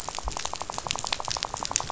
{"label": "biophony, rattle", "recorder": "SoundTrap 500"}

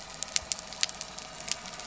{"label": "anthrophony, boat engine", "recorder": "SoundTrap 300"}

